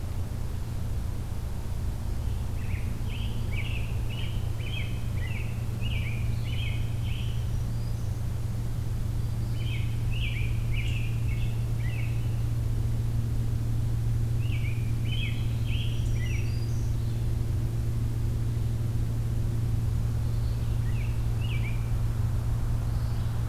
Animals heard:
Black-throated Green Warbler (Setophaga virens)
American Robin (Turdus migratorius)
Red-eyed Vireo (Vireo olivaceus)

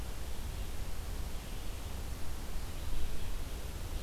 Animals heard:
Red-eyed Vireo (Vireo olivaceus)

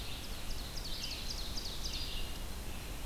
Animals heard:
Red-eyed Vireo (Vireo olivaceus)
Ovenbird (Seiurus aurocapilla)

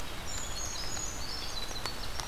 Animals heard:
Winter Wren (Troglodytes hiemalis)
Brown Creeper (Certhia americana)

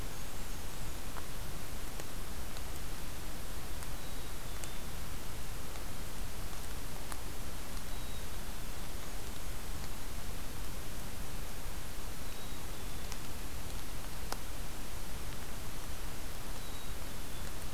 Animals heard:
Blackburnian Warbler (Setophaga fusca)
Black-capped Chickadee (Poecile atricapillus)

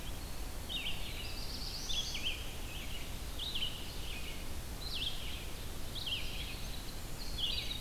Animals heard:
Winter Wren (Troglodytes hiemalis)
Black-throated Blue Warbler (Setophaga caerulescens)
Red-eyed Vireo (Vireo olivaceus)

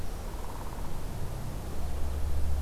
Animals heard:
Downy Woodpecker (Dryobates pubescens)

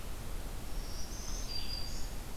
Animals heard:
Black-throated Green Warbler (Setophaga virens)
Red-eyed Vireo (Vireo olivaceus)

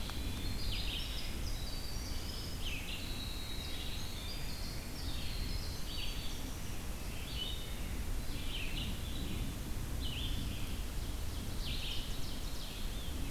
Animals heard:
Red-eyed Vireo (Vireo olivaceus)
Ovenbird (Seiurus aurocapilla)
Winter Wren (Troglodytes hiemalis)

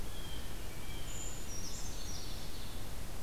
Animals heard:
Ovenbird (Seiurus aurocapilla)
Brown Creeper (Certhia americana)
Blue Jay (Cyanocitta cristata)

